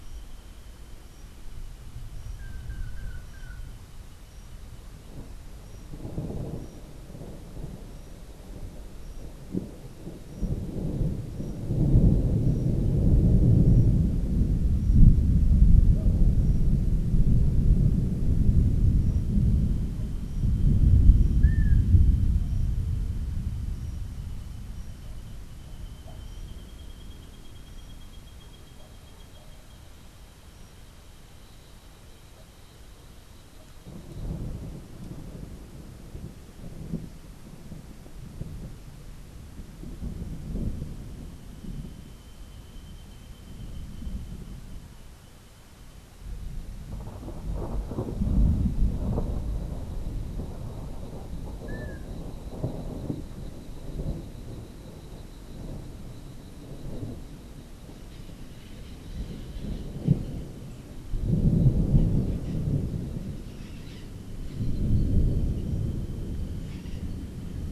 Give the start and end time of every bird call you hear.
2.2s-3.7s: Long-tailed Manakin (Chiroxiphia linearis)
21.3s-21.8s: Long-tailed Manakin (Chiroxiphia linearis)
51.6s-52.0s: Long-tailed Manakin (Chiroxiphia linearis)
63.4s-67.4s: White-crowned Parrot (Pionus senilis)

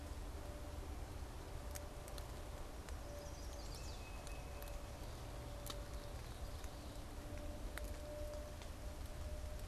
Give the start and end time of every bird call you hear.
3.0s-4.1s: Chestnut-sided Warbler (Setophaga pensylvanica)
3.7s-4.9s: Tufted Titmouse (Baeolophus bicolor)

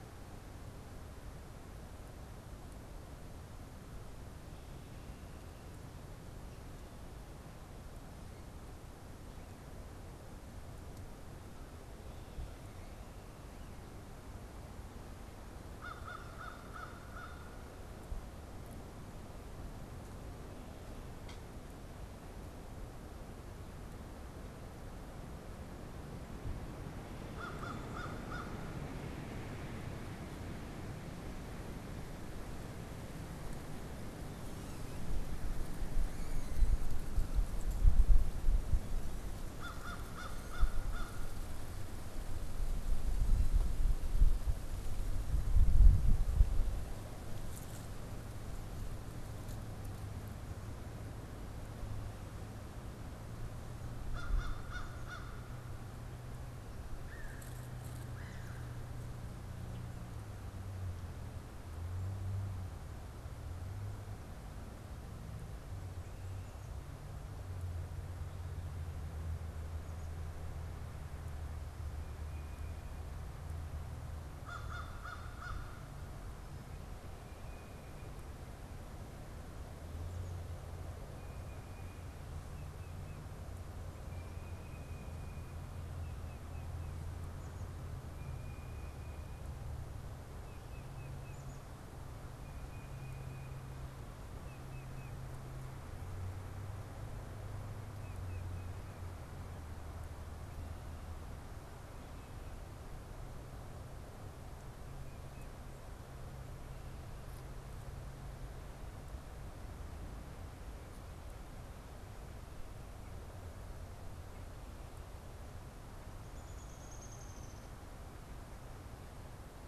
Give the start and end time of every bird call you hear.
15.5s-17.9s: American Crow (Corvus brachyrhynchos)
27.2s-29.3s: American Crow (Corvus brachyrhynchos)
39.4s-41.6s: American Crow (Corvus brachyrhynchos)
53.9s-56.0s: American Crow (Corvus brachyrhynchos)
56.9s-59.0s: unidentified bird
72.0s-73.2s: Tufted Titmouse (Baeolophus bicolor)
74.2s-76.3s: American Crow (Corvus brachyrhynchos)
77.1s-78.4s: Tufted Titmouse (Baeolophus bicolor)
80.8s-99.8s: Tufted Titmouse (Baeolophus bicolor)
104.8s-105.6s: Tufted Titmouse (Baeolophus bicolor)
116.1s-117.8s: Downy Woodpecker (Dryobates pubescens)

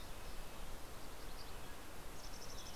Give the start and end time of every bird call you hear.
0.0s-2.8s: Mountain Chickadee (Poecile gambeli)
0.0s-2.8s: Red-breasted Nuthatch (Sitta canadensis)
1.1s-2.7s: Mountain Quail (Oreortyx pictus)

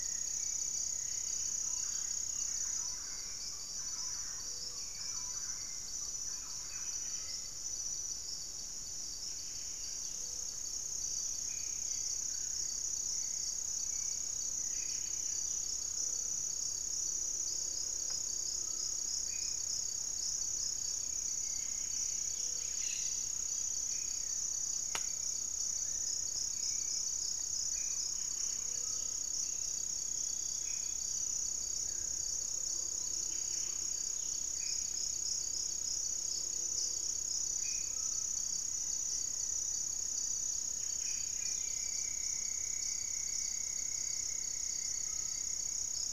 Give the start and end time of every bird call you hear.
0.0s-15.6s: Hauxwell's Thrush (Turdus hauxwelli)
0.0s-41.8s: Buff-breasted Wren (Cantorchilus leucotis)
1.5s-7.5s: Thrush-like Wren (Campylorhynchus turdinus)
4.3s-4.9s: Gray-fronted Dove (Leptotila rufaxilla)
6.4s-37.9s: Black-faced Antthrush (Formicarius analis)
9.6s-10.3s: unidentified bird
10.0s-10.6s: Gray-fronted Dove (Leptotila rufaxilla)
14.4s-16.1s: unidentified bird
15.8s-16.4s: Gray-fronted Dove (Leptotila rufaxilla)
21.2s-28.5s: Hauxwell's Thrush (Turdus hauxwelli)
22.2s-22.9s: Gray-fronted Dove (Leptotila rufaxilla)
28.0s-38.4s: Gray-cowled Wood-Rail (Aramides cajaneus)
28.4s-29.1s: Gray-fronted Dove (Leptotila rufaxilla)
30.9s-34.5s: unidentified bird
37.6s-41.4s: Rufous-fronted Antthrush (Formicarius rufifrons)
40.9s-46.0s: Black-faced Antthrush (Formicarius analis)
45.0s-45.4s: Gray-cowled Wood-Rail (Aramides cajaneus)

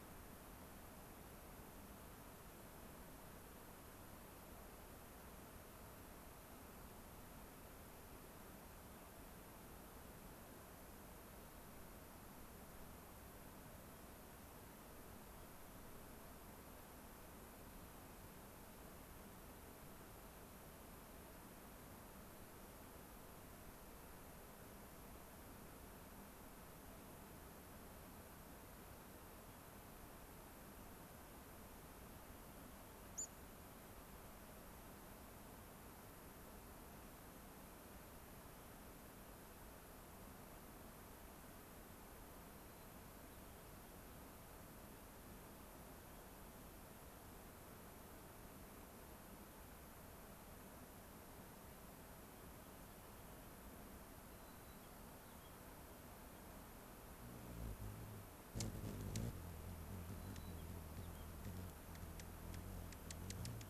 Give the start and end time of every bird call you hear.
33.1s-33.3s: unidentified bird
42.5s-43.7s: White-crowned Sparrow (Zonotrichia leucophrys)
52.3s-53.5s: Rock Wren (Salpinctes obsoletus)
54.3s-55.6s: White-crowned Sparrow (Zonotrichia leucophrys)
60.1s-61.3s: White-crowned Sparrow (Zonotrichia leucophrys)
60.3s-60.4s: unidentified bird

